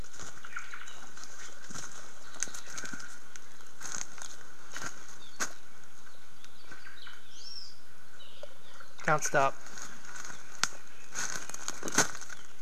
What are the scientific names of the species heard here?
Myadestes obscurus, Chlorodrepanis virens